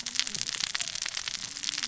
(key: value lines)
label: biophony, cascading saw
recorder: SoundTrap 600 or HydroMoth